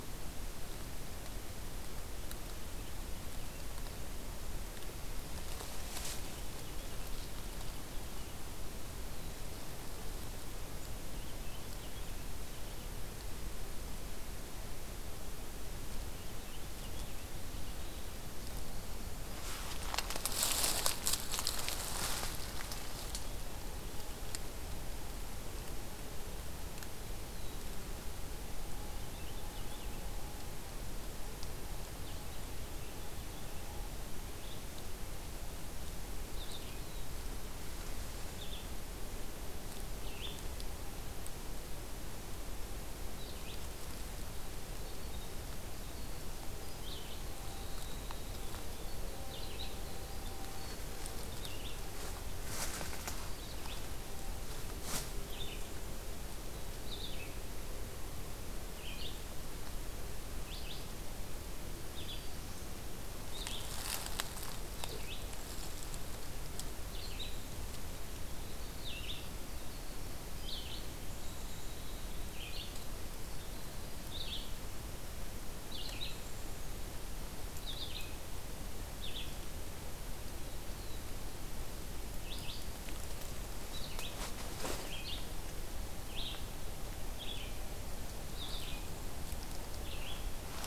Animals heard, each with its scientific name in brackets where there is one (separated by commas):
Winter Wren (Troglodytes hiemalis), Purple Finch (Haemorhous purpureus), Red-eyed Vireo (Vireo olivaceus)